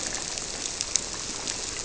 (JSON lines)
{"label": "biophony", "recorder": "SoundTrap 300"}